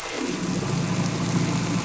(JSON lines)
{"label": "anthrophony, boat engine", "recorder": "SoundTrap 300"}